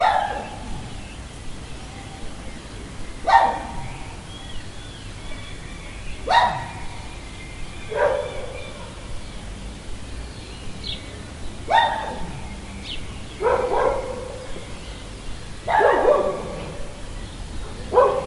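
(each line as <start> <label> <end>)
0.0 A dog barks once in the distance with an echo. 0.8
0.0 Very distant, quiet chirping of several birds. 18.3
0.0 White noise of wind. 18.3
3.2 A dog barks once in the distance with an echo. 3.7
6.2 A dog barks once in the distance with an echo. 8.6
10.8 A bird chirping in the distance. 11.4
11.6 A dog barks once in the distance with an echo. 12.7
12.8 A bird chirping in the distance. 13.4
13.4 A dog's bark echoes in the distance. 14.4
15.6 Two dogs bark loudly in the distance. 16.6
17.8 A dog's bark echoes in the distance. 18.3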